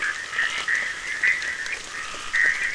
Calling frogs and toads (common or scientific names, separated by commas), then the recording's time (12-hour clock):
Bischoff's tree frog, Scinax perereca
4:30am